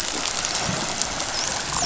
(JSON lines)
{"label": "biophony, dolphin", "recorder": "SoundTrap 500"}